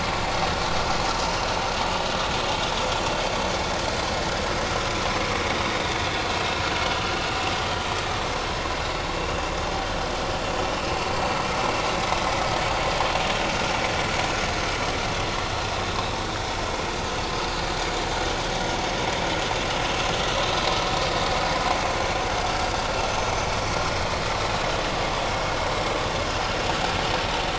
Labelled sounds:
6.3	6.6	vessel noise, 2.5 to 2.7 kHz
11.1	11.4	vessel noise, 4.4 to 4.7 kHz

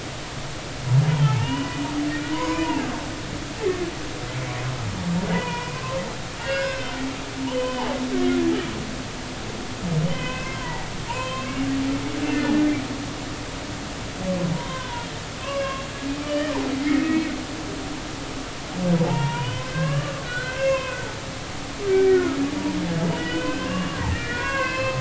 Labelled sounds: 1.1	2.9	humpback whale, 0.80 to 3.4 kHz
5.3	6.9	humpback whale, 0.90 to 3.0 kHz
7.5	7.9	humpback whale, 2.0 to 3.1 kHz
10.1	11.5	humpback whale, 0.80 to 3.2 kHz
12.3	12.6	humpback whale, 1.7 to 1.9 kHz
14.5	15.1	humpback whale, 0.90 to 3.3 kHz
15.4	16.5	humpback whale, 1.7 to 3.1 kHz
16.8	17.2	humpback whale, 1.7 to 2.3 kHz
19.0	21.1	humpback whale, 0.80 to 4.2 kHz
21.9	22.4	humpback whale, 1.2 to 2.4 kHz
23.1	25.0	humpback whale, 0.93 to 5.3 kHz

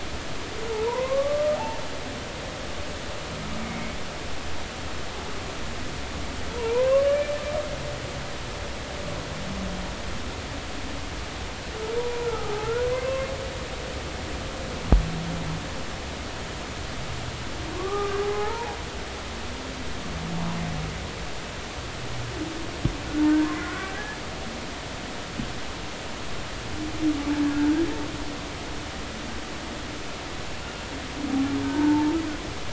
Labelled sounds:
0.7	1.8	humpback whale, 0.80 to 2.2 kHz
6.5	7.3	humpback whale, 0.86 to 1.9 kHz
12.0	13.3	humpback whale, 0.93 to 1.5 kHz
17.7	18.8	humpback whale, 0.80 to 1.4 kHz
23.6	24.2	humpback whale, 1.0 to 1.8 kHz
27.4	27.8	humpback whale, 1.4 to 1.8 kHz
31.6	32.1	humpback whale, 0.83 to 1.6 kHz

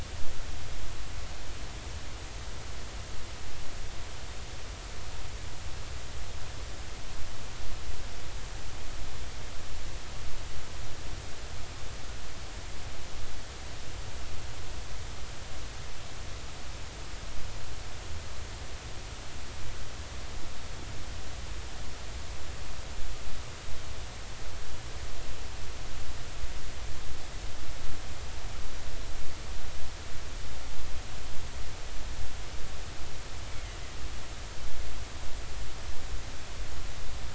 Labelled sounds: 33.5	33.8	killer whale, offshore, 1.9 to 2.3 kHz

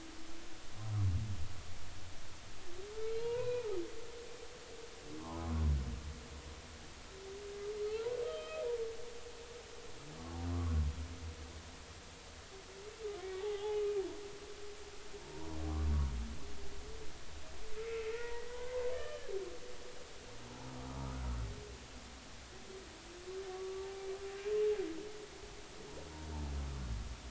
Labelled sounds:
3.2	3.7	humpback whale, 0.90 to 2.6 kHz
7.9	8.6	humpback whale, 0.80 to 3.3 kHz
13.2	13.9	humpback whale, 0.80 to 3.1 kHz
15.3	15.6	humpback whale, 0.90 to 1.1 kHz
17.8	19.3	humpback whale, 0.86 to 3.1 kHz
20.9	21.2	humpback whale, 1.1 to 1.3 kHz
23.5	24.1	humpback whale, 0.80 to 1.2 kHz

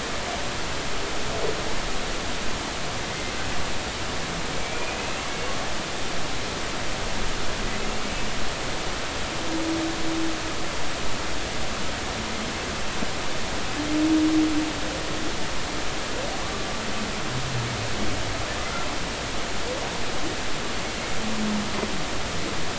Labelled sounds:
4.6	5.1	humpback whale, 2.2 to 2.7 kHz
16.4	16.7	humpback whale, 1.1 to 1.2 kHz

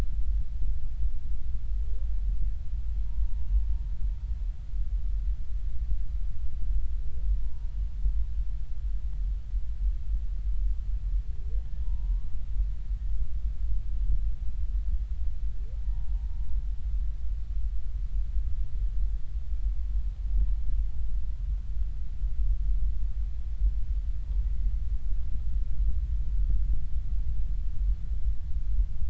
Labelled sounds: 3.2	3.5	humpback whale, 0.90 to 0.99 kHz
7.4	7.7	humpback whale, 0.90 to 0.99 kHz
11.8	12.2	humpback whale, 0.90 to 0.99 kHz
15.8	16.3	humpback whale, 0.90 to 1.0 kHz

